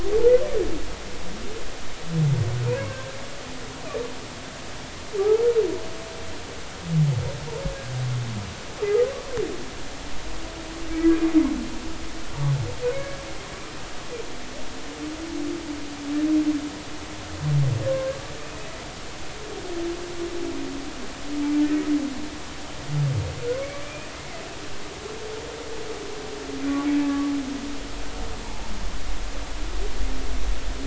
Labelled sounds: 2.9	3.2	humpback whale, 1.5 to 1.7 kHz
12.9	13.2	humpback whale, 1.6 to 2.3 kHz
23.8	24.4	humpback whale, 2.0 to 2.6 kHz
27.0	27.3	humpback whale, 1.1 to 1.8 kHz

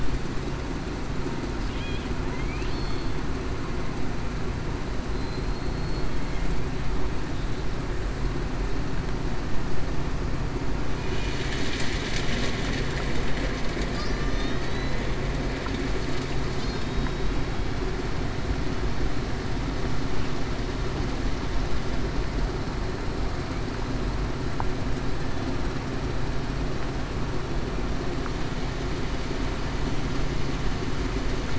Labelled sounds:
2.3	2.7	killer whale, southern resident, 2.0 to 2.8 kHz
2.7	3.1	killer whale, Bigg's (transient), 4.2 to 4.4 kHz
14.1	15.0	killer whale, Bigg's (transient), 3.8 to 6.0 kHz
16.7	17.3	killer whale, Bigg's (transient), 3.7 to 3.9 kHz

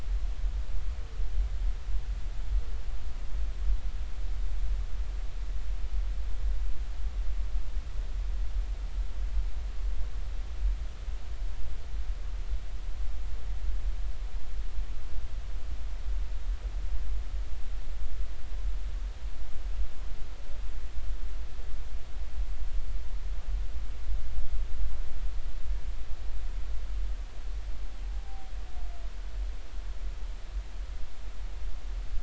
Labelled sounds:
28.2	28.5	humpback whale, 0.80 to 0.83 kHz

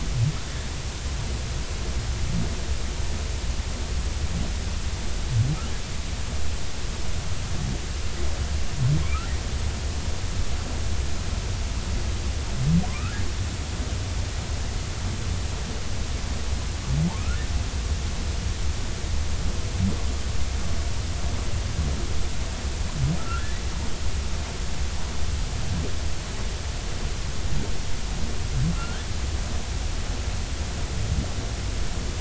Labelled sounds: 12.9	13.1	humpback whale, 0.96 to 1.5 kHz
23.2	23.5	humpback whale, 1.2 to 1.6 kHz
28.7	29.1	humpback whale, 1.2 to 1.8 kHz

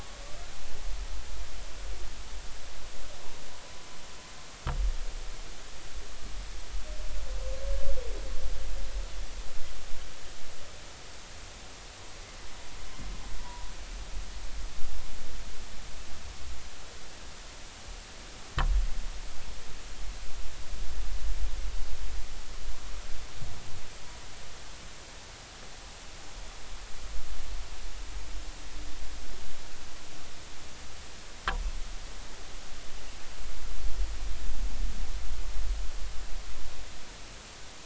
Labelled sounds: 13.4	13.7	humpback whale, 0.93 to 1.0 kHz

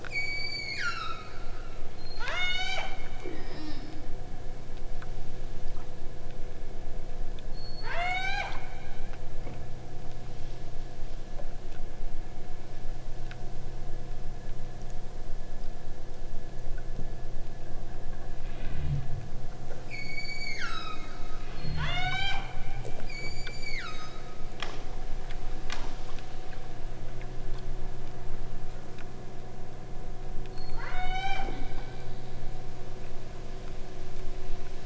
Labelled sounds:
0.0	1.7	killer whale, southern Alaska resident, 1.0 to 8.0 kHz
1.9	3.0	killer whale, southern Alaska resident, 0.34 to 8.0 kHz
7.5	8.7	killer whale, southern Alaska resident, 0.47 to 8.0 kHz
19.9	21.0	killer whale, southern Alaska resident, 1.0 to 8.0 kHz
21.5	22.5	killer whale, southern Alaska resident, 0.30 to 8.0 kHz
22.9	24.3	killer whale, southern Alaska resident, 0.85 to 8.0 kHz
30.6	31.6	killer whale, southern Alaska resident, 0.54 to 8.0 kHz

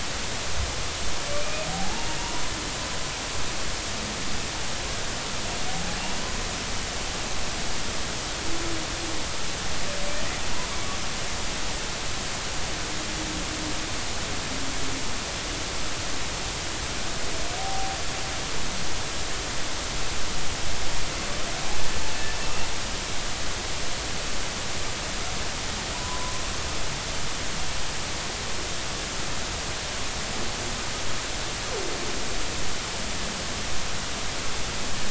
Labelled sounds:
1.4	2.2	humpback whale, 0.80 to 2.6 kHz
17.6	18.0	humpback whale, 0.80 to 0.83 kHz
25.9	26.3	humpback whale, 0.93 to 1.1 kHz

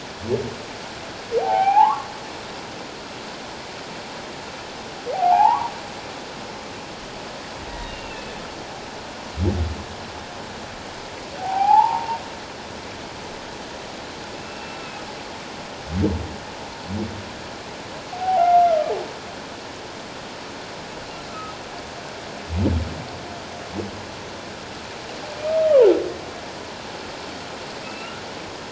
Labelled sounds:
1.4	2.1	humpback whale, 0.78 to 2.6 kHz
5.1	5.7	humpback whale, 0.78 to 1.2 kHz
7.7	8.3	humpback whale, 1.8 to 2.9 kHz
11.4	12.2	humpback whale, 0.78 to 1.1 kHz
14.4	14.8	humpback whale, 2.6 to 2.8 kHz
18.1	18.6	humpback whale, 0.78 to 1.4 kHz
21.3	21.6	humpback whale, 1.2 to 1.4 kHz
27.8	28.2	humpback whale, 2.5 to 2.9 kHz

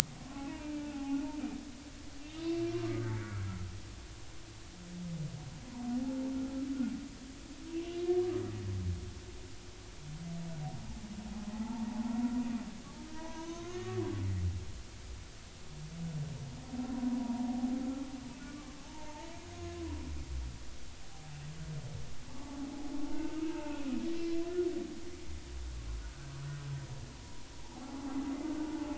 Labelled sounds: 0.3	1.2	humpback whale, 0.80 to 2.6 kHz
2.4	3.5	humpback whale, 1.3 to 2.9 kHz
6.0	6.2	humpback whale, 0.80 to 0.93 kHz
11.5	12.2	humpback whale, 0.80 to 0.99 kHz
13.0	14.0	humpback whale, 0.86 to 1.9 kHz
17.1	17.5	humpback whale, 0.83 to 1.0 kHz
18.4	19.3	humpback whale, 0.83 to 1.2 kHz
22.4	22.6	humpback whale, 0.80 to 0.93 kHz
23.0	23.9	humpback whale, 0.83 to 2.7 kHz
27.6	28.9	humpback whale, 0.80 to 1.1 kHz

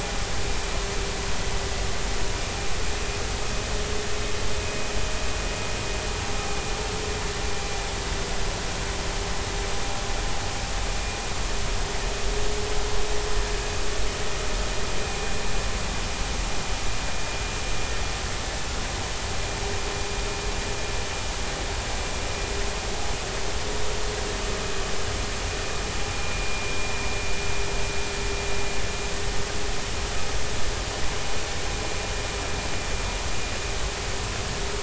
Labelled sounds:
26.1	26.9	vessel noise, 2.3 to 2.5 kHz

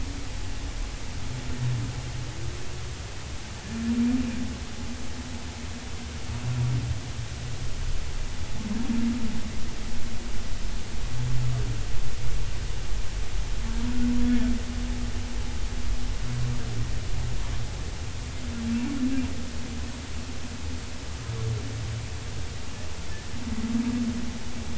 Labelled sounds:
23.1	23.4	humpback whale, 1.7 to 1.9 kHz

